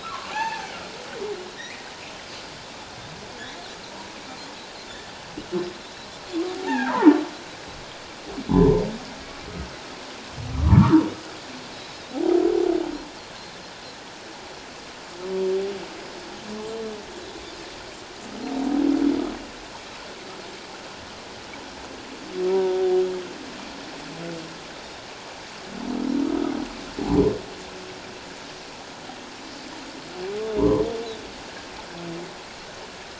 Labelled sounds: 0.0	0.7	humpback whale, 0.78 to 2.8 kHz
1.5	1.9	humpback whale, 1.7 to 3.9 kHz
6.5	7.1	humpback whale, 0.78 to 1.9 kHz
8.5	8.8	humpback whale, 0.81 to 1.1 kHz
10.5	11.0	humpback whale, 0.84 to 1.4 kHz
11.7	12.4	humpback whale, 0.78 to 4.0 kHz
16.0	16.3	humpback whale, 5.0 to 5.2 kHz
22.5	22.8	Pacific white-sided dolphin, 0.88 to 1.0 kHz
22.5	23.0	humpback whale, 0.78 to 0.84 kHz
24.7	25.0	Pacific white-sided dolphin, 3.6 to 3.8 kHz
30.6	30.8	humpback whale, 0.88 to 1.2 kHz

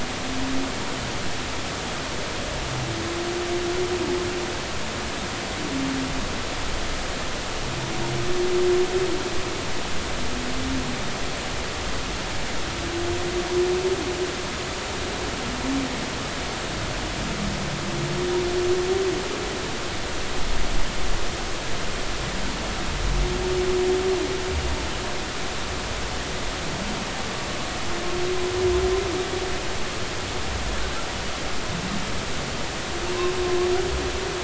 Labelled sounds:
33.4	33.7	humpback whale, 1.0 to 1.2 kHz

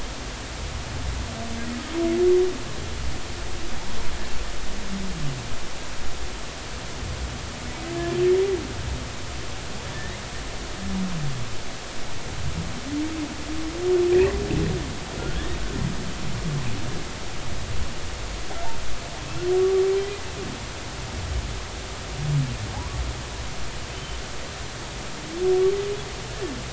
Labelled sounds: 9.9	10.2	humpback whale, 1.7 to 2.1 kHz
14.1	14.4	humpback whale, 1.8 to 2.1 kHz
19.6	19.8	humpback whale, 1.1 to 1.2 kHz
22.7	23.0	humpback whale, 0.80 to 1.2 kHz
23.9	24.2	humpback whale, 3.0 to 3.1 kHz

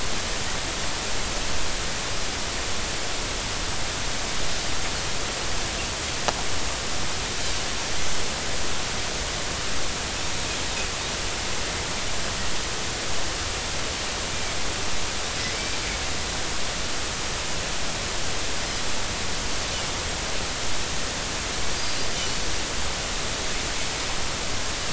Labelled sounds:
15.5	15.8	Pacific white-sided dolphin, 2.3 to 2.4 kHz
21.8	22.1	Pacific white-sided dolphin, 4.7 to 4.9 kHz

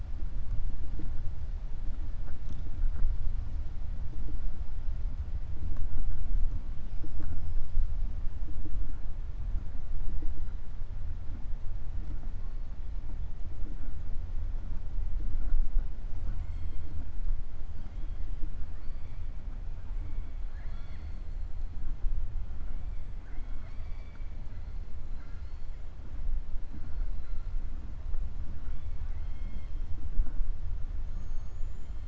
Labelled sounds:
20.4	21.3	killer whale, 0.75 to 5.6 kHz
23.1	24.3	killer whale, 0.70 to 5.6 kHz
28.5	29.8	killer whale, 1.0 to 4.2 kHz
31.0	32.0	killer whale, 6.2 to 7.8 kHz

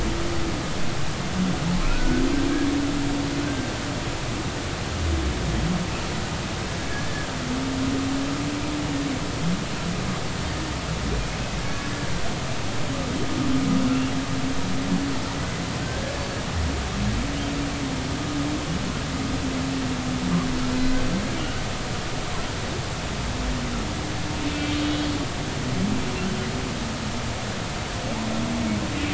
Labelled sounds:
1.8	2.2	humpback whale, 1.2 to 1.6 kHz
3.5	3.7	humpback whale, 1.5 to 1.6 kHz
7.1	7.3	humpback whale, 1.5 to 1.8 kHz
11.6	11.9	humpback whale, 1.6 to 1.7 kHz
15.8	16.4	humpback whale, 1.5 to 4.6 kHz
24.5	24.7	humpback whale, 2.6 to 2.7 kHz

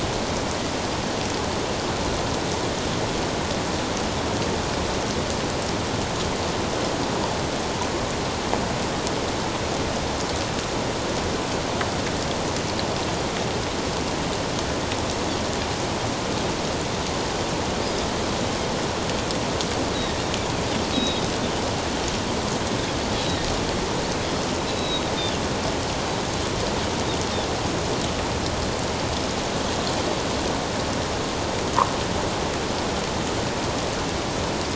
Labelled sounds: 20.9	21.3	Pacific white-sided dolphin, 3.7 to 3.9 kHz
23.2	23.5	Pacific white-sided dolphin, 3.6 to 4.0 kHz
24.7	25.0	Pacific white-sided dolphin, 2.5 to 4.1 kHz

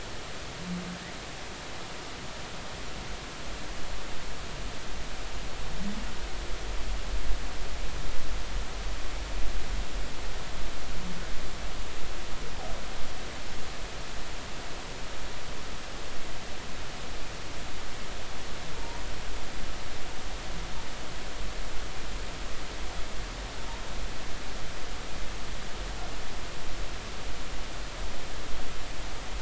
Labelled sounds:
18.8	19.0	humpback whale, 0.90 to 0.99 kHz

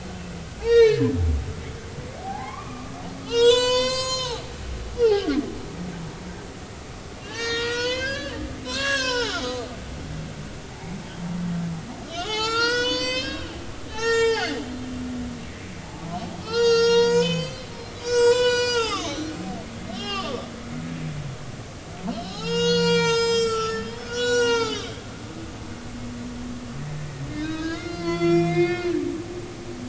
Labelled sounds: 0.6	1.1	humpback whale, 1.6 to 6.6 kHz
2.2	4.5	humpback whale, 0.80 to 8.0 kHz
5.0	5.4	humpback whale, 0.80 to 1.7 kHz
7.2	9.7	humpback whale, 0.80 to 7.7 kHz
10.7	11.0	humpback whale, 0.80 to 0.96 kHz
12.1	13.5	humpback whale, 0.80 to 7.4 kHz
13.9	14.6	humpback whale, 0.80 to 7.4 kHz
15.8	16.1	humpback whale, 0.80 to 0.96 kHz
16.4	19.4	humpback whale, 0.80 to 8.0 kHz
19.9	20.5	humpback whale, 1.1 to 5.4 kHz
22.1	24.9	humpback whale, 0.80 to 8.0 kHz
27.3	28.9	humpback whale, 0.96 to 7.3 kHz

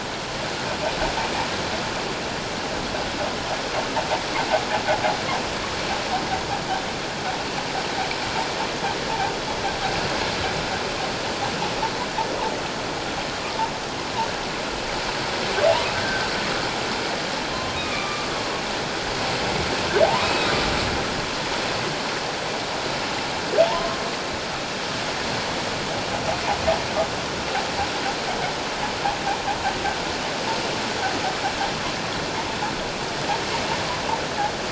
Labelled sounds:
15.9	16.3	humpback whale, 1.5 to 1.7 kHz
17.8	18.3	humpback whale, 1.1 to 2.6 kHz
20.0	20.5	humpback whale, 0.78 to 2.6 kHz
23.7	24.0	humpback whale, 0.81 to 1.1 kHz

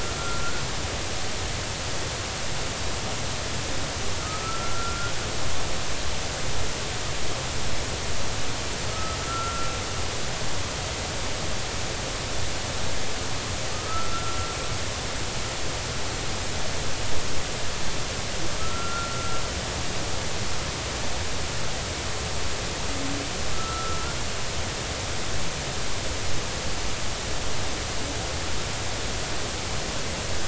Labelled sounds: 4.2	5.1	humpback whale, 1.2 to 1.5 kHz
8.9	9.7	humpback whale, 1.2 to 1.5 kHz
13.7	14.5	humpback whale, 1.2 to 1.5 kHz
18.6	19.4	humpback whale, 1.2 to 1.5 kHz
23.5	24.2	humpback whale, 1.2 to 1.5 kHz

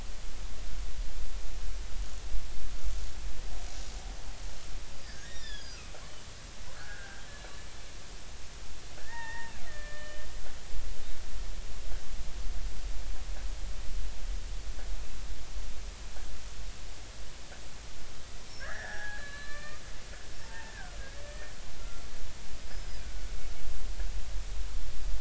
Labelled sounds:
5.1	6.0	killer whale, Bigg's (transient), 1.1 to 5.9 kHz
6.8	7.2	killer whale, Bigg's (transient), 1.3 to 1.8 kHz
9.0	10.2	killer whale, Bigg's (transient), 0.83 to 3.1 kHz
18.6	20.7	killer whale, Bigg's (transient), 0.80 to 5.8 kHz
21.3	22.1	killer whale, Bigg's (transient), 1.3 to 1.9 kHz
22.6	22.9	killer whale, Bigg's (transient), 5.0 to 5.3 kHz

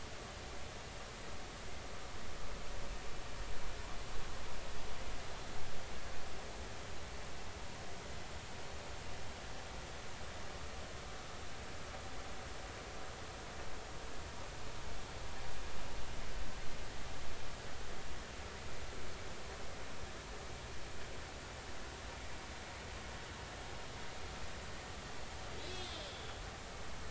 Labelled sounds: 25.6	26.3	killer whale, northern resident, A clan, call N03, 3.1 to 7.9 kHz

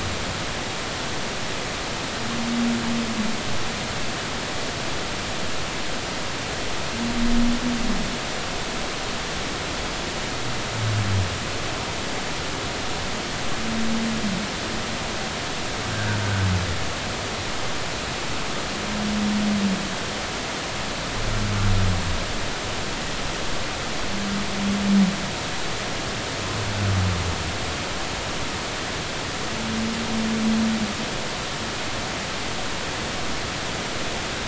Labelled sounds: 15.9	16.2	humpback whale, 1.4 to 1.7 kHz

